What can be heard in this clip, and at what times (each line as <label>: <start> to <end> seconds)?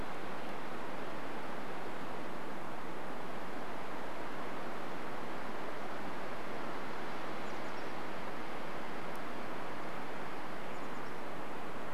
Chestnut-backed Chickadee call: 6 to 8 seconds
Mountain Chickadee call: 6 to 8 seconds
Chestnut-backed Chickadee call: 10 to 12 seconds
Mountain Chickadee call: 10 to 12 seconds